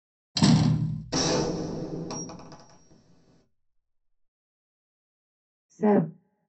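At the start, a door slams. Next, about 1 second in, there is gunfire. Later, about 6 seconds in, someone says "seven".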